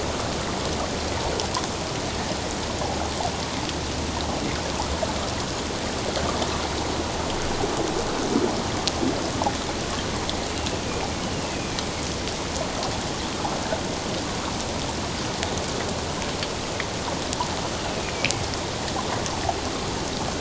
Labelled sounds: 11.2	11.9	killer whale, northern resident, A clan, AA subclan, 2.2 to 3.0 kHz
17.8	18.1	killer whale, northern resident, A clan, AA subclan, 2.4 to 2.9 kHz

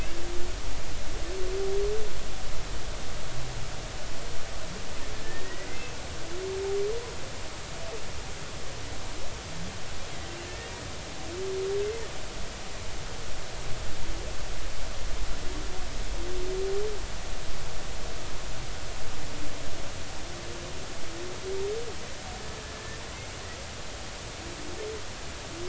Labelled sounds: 5.2	5.7	humpback whale, 1.7 to 2.0 kHz
10.5	10.8	humpback whale, 1.7 to 1.9 kHz

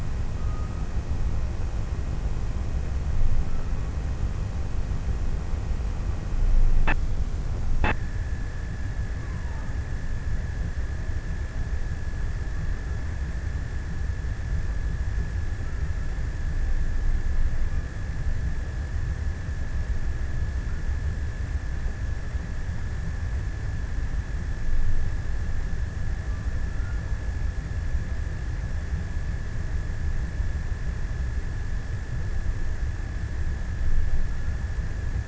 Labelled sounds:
26.3	27.9	killer whale, offshore, 0.61 to 1.8 kHz

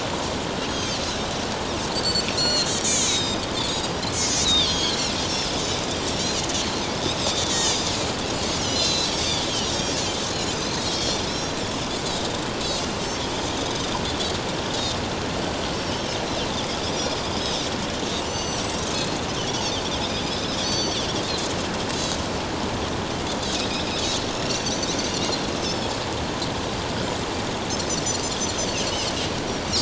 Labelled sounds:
0.7	1.0	Pacific white-sided dolphin, 2.9 to 6.7 kHz
1.9	5.6	Pacific white-sided dolphin, 2.4 to 7.9 kHz
6.1	6.4	Pacific white-sided dolphin, 5.4 to 5.9 kHz
7.2	8.0	Pacific white-sided dolphin, 1.8 to 7.6 kHz
8.6	10.0	Pacific white-sided dolphin, 2.6 to 6.9 kHz
10.5	11.6	Pacific white-sided dolphin, 3.1 to 6.4 kHz
12.0	12.4	Pacific white-sided dolphin, 3.6 to 4.2 kHz
14.7	16.2	Pacific white-sided dolphin, 2.8 to 5.4 kHz
16.9	17.2	Pacific white-sided dolphin, 7.0 to 7.2 kHz
18.2	19.1	Pacific white-sided dolphin, 2.8 to 8.0 kHz
20.6	21.0	Pacific white-sided dolphin, 4.3 to 6.2 kHz
23.4	23.9	Pacific white-sided dolphin, 3.7 to 5.4 kHz
24.3	25.9	Pacific white-sided dolphin, 2.8 to 7.0 kHz

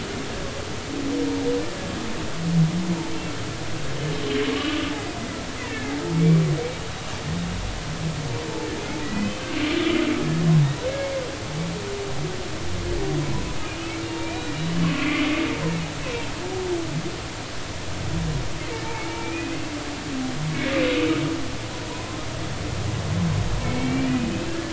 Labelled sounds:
4.5	4.9	humpback whale, 1.0 to 1.3 kHz
5.7	6.4	humpback whale, 1.6 to 2.4 kHz
9.0	10.0	humpback whale, 1.9 to 3.1 kHz
11.0	11.2	humpback whale, 2.1 to 2.2 kHz
14.0	14.5	humpback whale, 2.3 to 2.8 kHz
14.9	15.1	humpback whale, 2.5 to 2.7 kHz
18.9	19.6	humpback whale, 2.1 to 2.6 kHz
23.8	24.7	humpback whale, 1.6 to 2.9 kHz

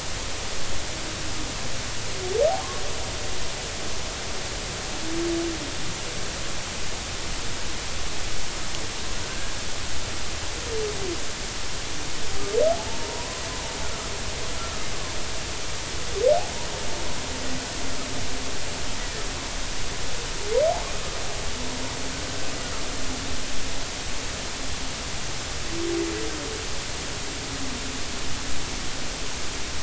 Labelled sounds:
12.9	13.4	humpback whale, 0.86 to 1.1 kHz

